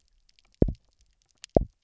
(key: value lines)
label: biophony, double pulse
recorder: SoundTrap 300